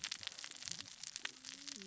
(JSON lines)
{"label": "biophony, cascading saw", "recorder": "SoundTrap 600 or HydroMoth"}